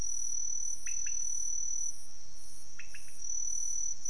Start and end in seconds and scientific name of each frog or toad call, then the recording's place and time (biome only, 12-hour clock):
0.8	1.3	Leptodactylus podicipinus
2.7	3.1	Leptodactylus podicipinus
Cerrado, 4:30am